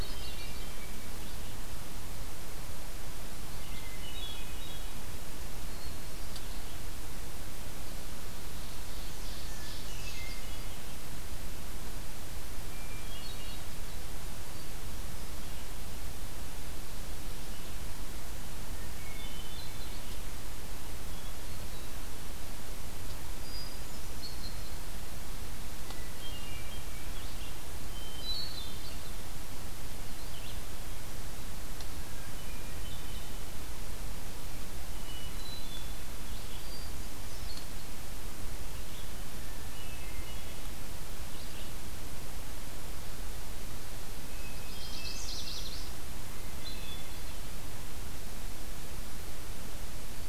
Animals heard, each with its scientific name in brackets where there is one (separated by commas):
Red-eyed Vireo (Vireo olivaceus), unidentified call, Hermit Thrush (Catharus guttatus), Chestnut-sided Warbler (Setophaga pensylvanica), Ovenbird (Seiurus aurocapilla)